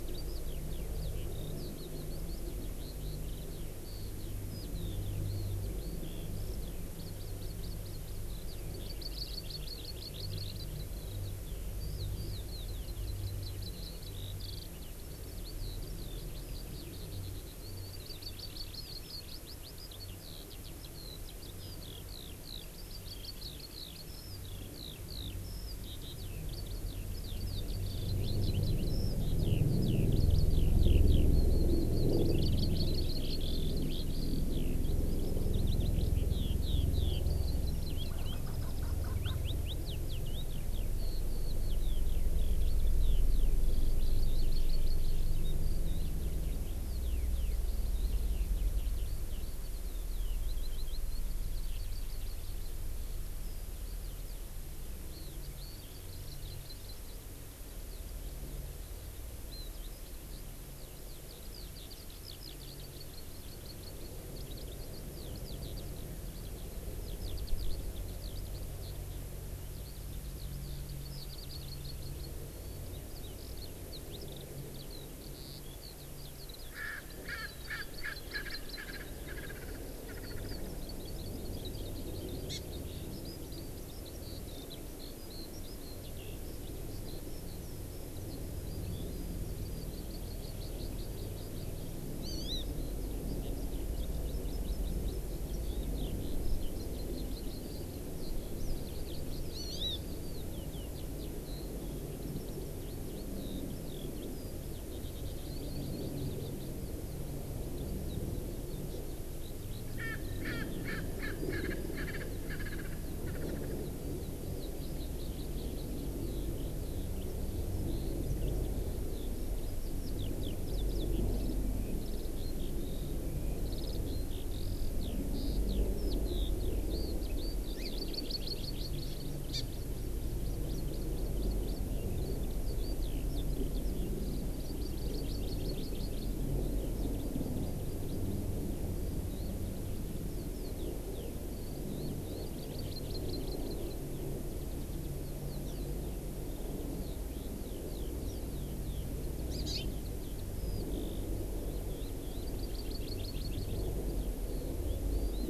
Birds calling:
Hawaii Amakihi (Chlorodrepanis virens), Eurasian Skylark (Alauda arvensis), Erckel's Francolin (Pternistis erckelii)

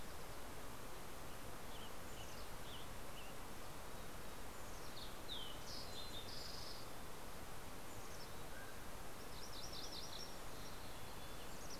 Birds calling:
Mountain Chickadee (Poecile gambeli), Mountain Quail (Oreortyx pictus), MacGillivray's Warbler (Geothlypis tolmiei), Fox Sparrow (Passerella iliaca), Western Tanager (Piranga ludoviciana)

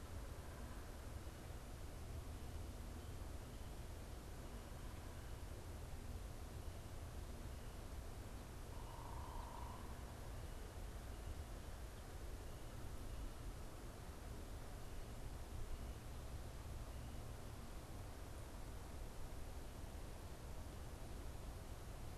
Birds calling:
unidentified bird

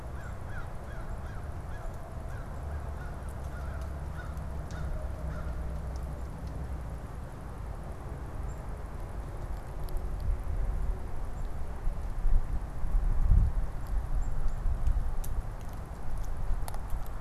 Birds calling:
American Crow (Corvus brachyrhynchos), unidentified bird

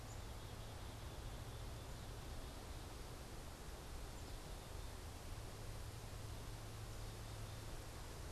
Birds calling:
Black-capped Chickadee (Poecile atricapillus)

